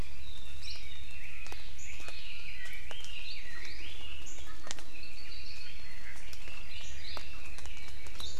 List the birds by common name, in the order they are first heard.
Chinese Hwamei, Apapane